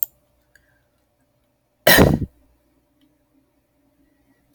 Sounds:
Cough